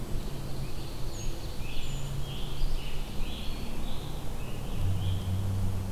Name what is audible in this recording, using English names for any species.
Ovenbird, Brown Creeper, Scarlet Tanager, Eastern Wood-Pewee